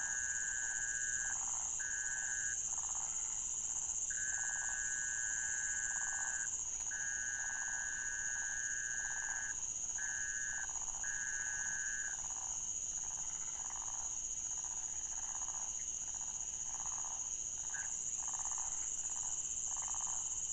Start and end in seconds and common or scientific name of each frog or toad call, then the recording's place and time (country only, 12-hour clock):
0.0	20.5	waxy monkey tree frog
6.7	6.9	rufous frog
12.2	12.3	rufous frog
13.0	13.2	rufous frog
Brazil, 4:00am